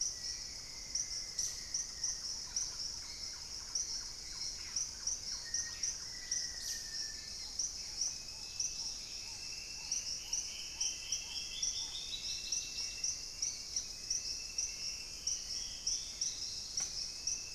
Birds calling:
Black-faced Antthrush (Formicarius analis)
Hauxwell's Thrush (Turdus hauxwelli)
Thrush-like Wren (Campylorhynchus turdinus)
Black-tailed Trogon (Trogon melanurus)
Dusky-capped Greenlet (Pachysylvia hypoxantha)
Dusky-throated Antshrike (Thamnomanes ardesiacus)
unidentified bird

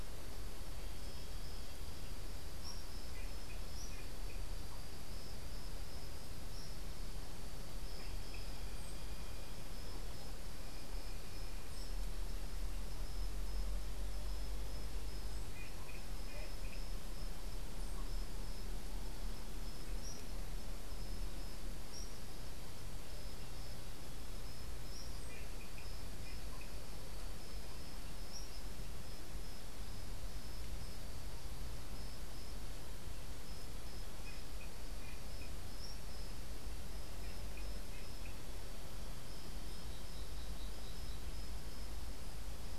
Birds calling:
Tropical Kingbird (Tyrannus melancholicus)

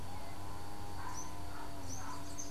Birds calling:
Chestnut-capped Brushfinch (Arremon brunneinucha)

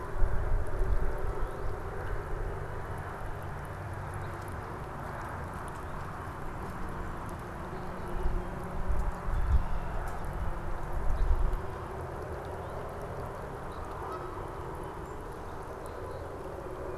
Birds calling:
Canada Goose (Branta canadensis)
Red-winged Blackbird (Agelaius phoeniceus)
Song Sparrow (Melospiza melodia)

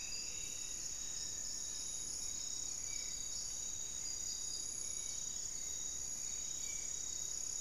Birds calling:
Striped Woodcreeper (Xiphorhynchus obsoletus)
Spot-winged Antshrike (Pygiptila stellaris)
Goeldi's Antbird (Akletos goeldii)
Hauxwell's Thrush (Turdus hauxwelli)
Black-faced Antthrush (Formicarius analis)

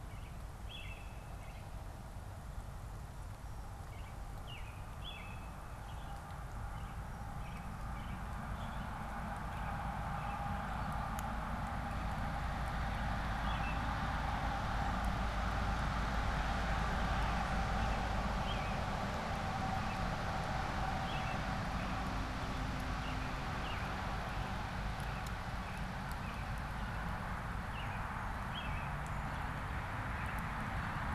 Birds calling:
American Robin (Turdus migratorius)

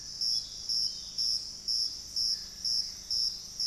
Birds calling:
Gray Antbird (Cercomacra cinerascens)
Dusky-throated Antshrike (Thamnomanes ardesiacus)
Ringed Antpipit (Corythopis torquatus)

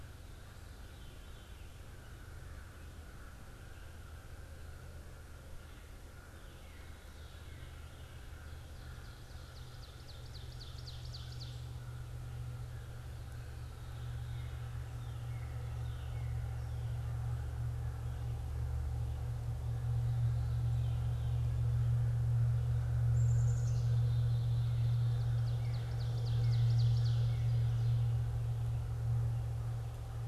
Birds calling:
Northern Cardinal (Cardinalis cardinalis)
Black-capped Chickadee (Poecile atricapillus)
American Crow (Corvus brachyrhynchos)
Ovenbird (Seiurus aurocapilla)

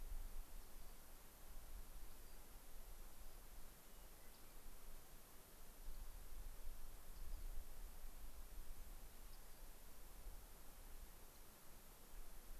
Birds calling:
Rock Wren (Salpinctes obsoletus)
Hermit Thrush (Catharus guttatus)

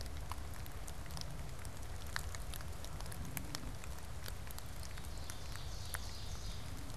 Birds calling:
Ovenbird (Seiurus aurocapilla)

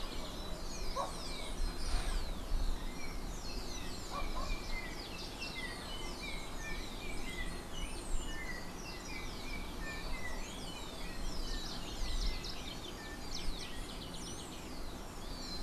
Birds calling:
House Wren (Troglodytes aedon)
Yellow-backed Oriole (Icterus chrysater)
Rufous-collared Sparrow (Zonotrichia capensis)

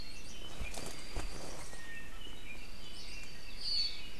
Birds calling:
Hawaii Creeper (Loxops mana)
Apapane (Himatione sanguinea)

